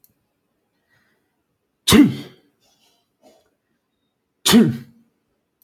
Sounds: Sneeze